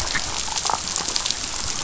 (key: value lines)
label: biophony, damselfish
recorder: SoundTrap 500